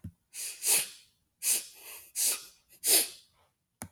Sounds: Sniff